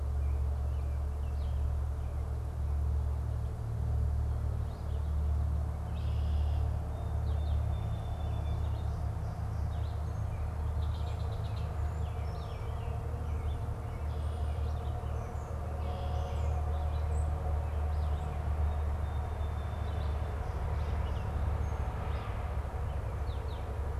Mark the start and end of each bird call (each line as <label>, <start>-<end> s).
Red-eyed Vireo (Vireo olivaceus), 0.0-10.6 s
Red-winged Blackbird (Agelaius phoeniceus), 5.4-6.8 s
Song Sparrow (Melospiza melodia), 6.9-9.0 s
Red-winged Blackbird (Agelaius phoeniceus), 10.5-11.9 s
Red-eyed Vireo (Vireo olivaceus), 12.0-23.8 s
Red-winged Blackbird (Agelaius phoeniceus), 15.5-16.7 s
Song Sparrow (Melospiza melodia), 18.4-20.3 s